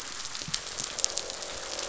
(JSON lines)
{"label": "biophony, croak", "recorder": "SoundTrap 500"}